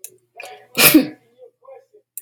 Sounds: Sneeze